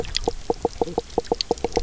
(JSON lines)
{"label": "biophony, knock croak", "recorder": "SoundTrap 300"}